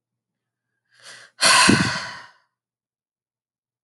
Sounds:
Sigh